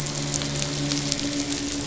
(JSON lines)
{"label": "biophony, midshipman", "recorder": "SoundTrap 500"}